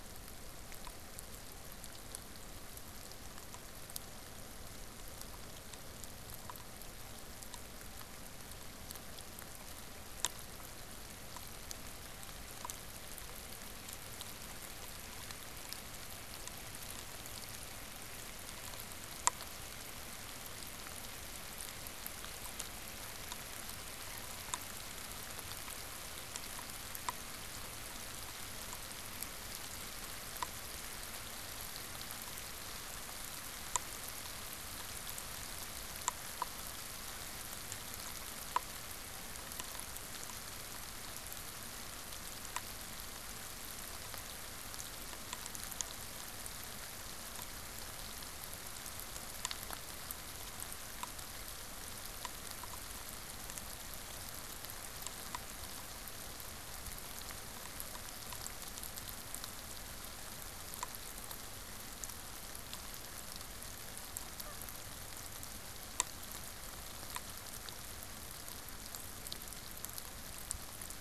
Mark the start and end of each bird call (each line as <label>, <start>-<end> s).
Canada Goose (Branta canadensis), 64.3-64.7 s